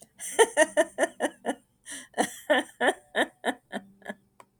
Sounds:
Laughter